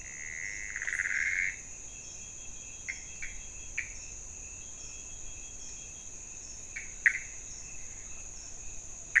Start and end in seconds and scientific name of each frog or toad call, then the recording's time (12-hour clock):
0.0	1.7	Pithecopus azureus
6.5	9.2	Pithecopus azureus
3:00am